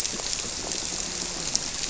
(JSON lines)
{"label": "biophony", "recorder": "SoundTrap 300"}
{"label": "biophony, grouper", "recorder": "SoundTrap 300"}